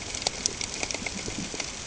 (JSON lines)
{"label": "ambient", "recorder": "HydroMoth"}